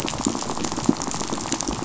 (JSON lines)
{"label": "biophony, rattle", "recorder": "SoundTrap 500"}